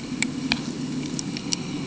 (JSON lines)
{"label": "anthrophony, boat engine", "recorder": "HydroMoth"}